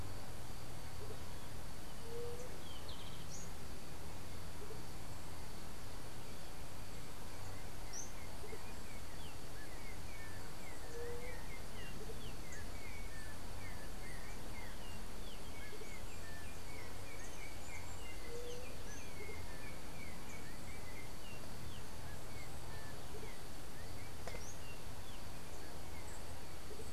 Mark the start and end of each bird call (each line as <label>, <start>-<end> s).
White-tipped Dove (Leptotila verreauxi), 2.0-2.5 s
Golden-faced Tyrannulet (Zimmerius chrysops), 2.5-3.3 s
Yellow-backed Oriole (Icterus chrysater), 7.1-25.3 s
White-tipped Dove (Leptotila verreauxi), 10.9-11.4 s
Andean Motmot (Momotus aequatorialis), 11.9-26.9 s
White-tipped Dove (Leptotila verreauxi), 18.2-18.8 s